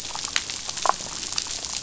{"label": "biophony, damselfish", "recorder": "SoundTrap 500"}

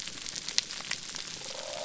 {"label": "biophony", "recorder": "SoundTrap 300"}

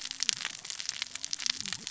{"label": "biophony, cascading saw", "recorder": "SoundTrap 600 or HydroMoth"}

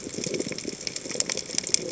{"label": "biophony", "recorder": "HydroMoth"}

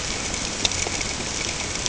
{"label": "ambient", "recorder": "HydroMoth"}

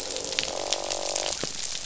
{"label": "biophony, croak", "recorder": "SoundTrap 500"}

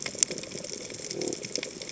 {"label": "biophony", "recorder": "HydroMoth"}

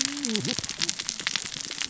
{"label": "biophony, cascading saw", "recorder": "SoundTrap 600 or HydroMoth"}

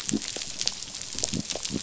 {"label": "biophony", "recorder": "SoundTrap 500"}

